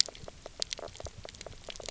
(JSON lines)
{"label": "biophony, knock croak", "recorder": "SoundTrap 300"}